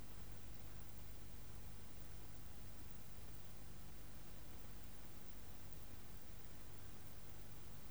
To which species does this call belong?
Parnassiana tymphrestos